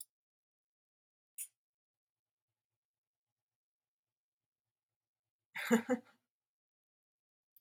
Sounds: Laughter